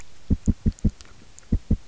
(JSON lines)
{"label": "biophony, knock", "recorder": "SoundTrap 300"}